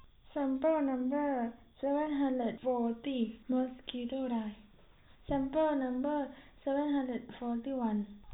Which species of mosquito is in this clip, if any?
no mosquito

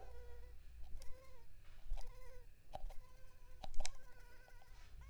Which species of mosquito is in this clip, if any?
Anopheles arabiensis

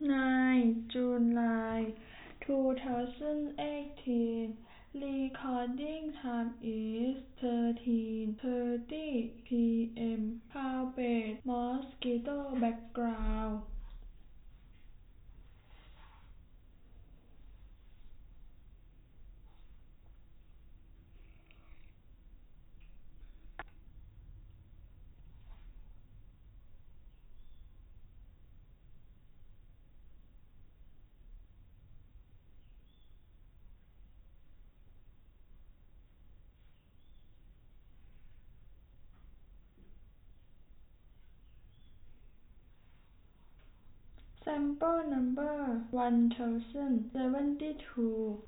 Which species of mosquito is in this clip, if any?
no mosquito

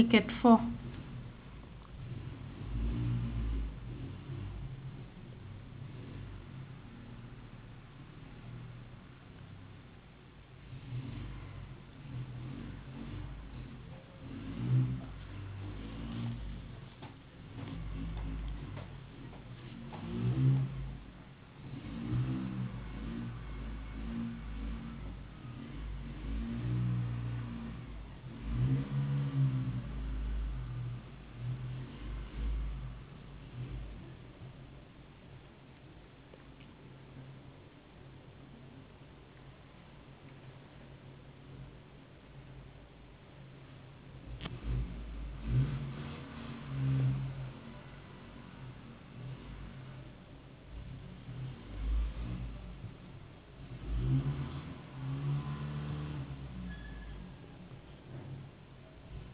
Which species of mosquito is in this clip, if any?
no mosquito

